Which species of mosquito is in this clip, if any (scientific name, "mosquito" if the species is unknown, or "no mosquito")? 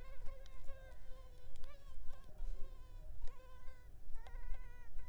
Culex pipiens complex